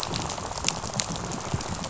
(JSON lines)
{"label": "biophony, rattle", "recorder": "SoundTrap 500"}